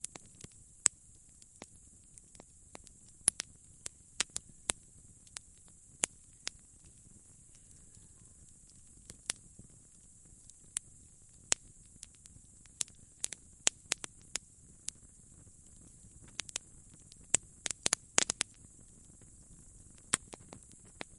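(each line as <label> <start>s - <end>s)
Fire crackling repeatedly. 0.0s - 21.2s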